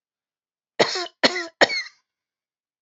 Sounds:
Cough